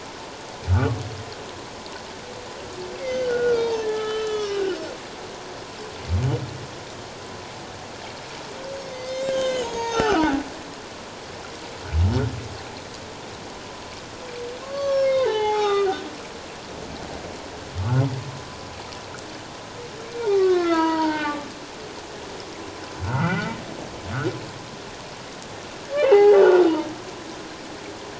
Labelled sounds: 0.7	1.0	humpback whale, 1.1 to 1.5 kHz
3.0	4.8	humpback whale, 1.2 to 6.0 kHz
8.9	10.3	humpback whale, 0.78 to 7.0 kHz
14.6	16.0	humpback whale, 0.78 to 5.5 kHz
20.3	21.5	humpback whale, 0.81 to 4.7 kHz
23.0	23.5	humpback whale, 1.2 to 2.1 kHz
25.9	26.7	humpback whale, 0.78 to 3.1 kHz

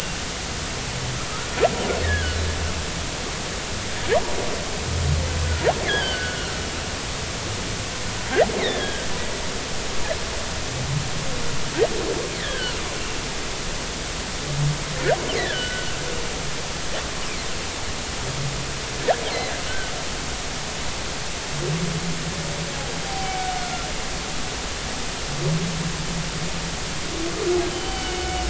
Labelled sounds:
2.0	2.4	humpback whale, 1.4 to 2.0 kHz
5.8	6.6	humpback whale, 1.3 to 3.4 kHz
8.6	9.0	humpback whale, 1.5 to 2.3 kHz
12.4	12.8	humpback whale, 1.3 to 3.6 kHz
15.4	15.9	humpback whale, 1.4 to 3.2 kHz
23.0	24.3	humpback whale, 0.80 to 4.8 kHz
27.7	28.4	humpback whale, 2.1 to 4.7 kHz

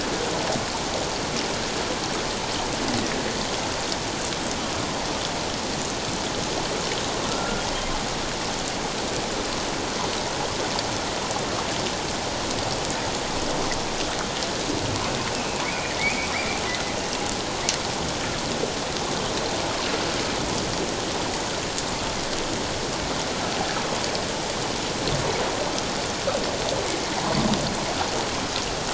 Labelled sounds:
7.3	7.6	humpback whale, 1.3 to 1.5 kHz
16.0	16.6	humpback whale, 1.8 to 2.6 kHz

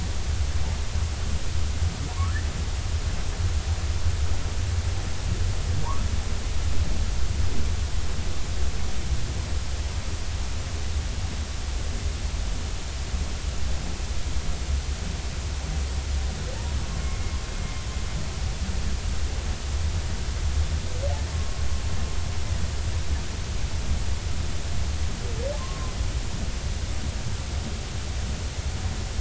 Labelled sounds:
17.0	17.8	humpback whale, 2.1 to 2.2 kHz
21.3	21.6	humpback whale, 1.06 to 1.12 kHz
25.6	25.9	humpback whale, 0.96 to 1.1 kHz

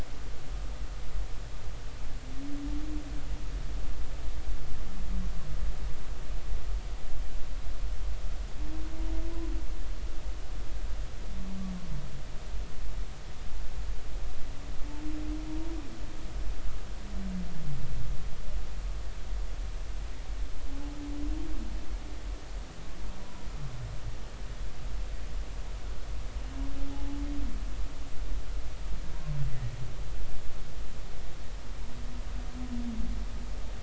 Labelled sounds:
23.2	23.5	humpback whale, 0.93 to 1.0 kHz
26.9	27.2	humpback whale, 0.80 to 0.90 kHz

